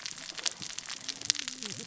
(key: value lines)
label: biophony, cascading saw
recorder: SoundTrap 600 or HydroMoth